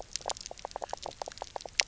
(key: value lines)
label: biophony, knock croak
recorder: SoundTrap 300